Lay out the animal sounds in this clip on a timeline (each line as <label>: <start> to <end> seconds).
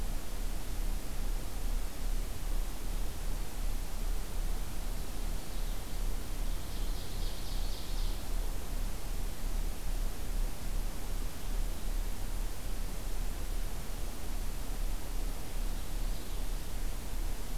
Purple Finch (Haemorhous purpureus): 5.0 to 6.2 seconds
Ovenbird (Seiurus aurocapilla): 6.6 to 8.2 seconds
Purple Finch (Haemorhous purpureus): 15.2 to 16.5 seconds